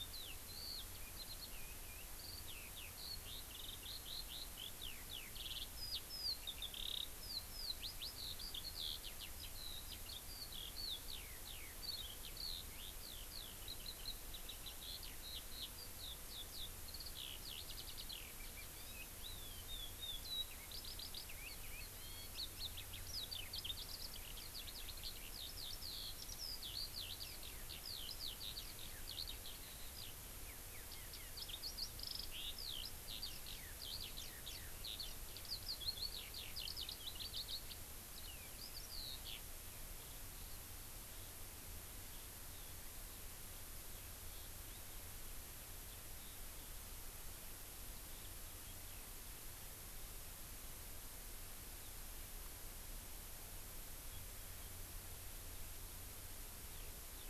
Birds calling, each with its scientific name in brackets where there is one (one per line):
Eurasian Skylark (Alauda arvensis)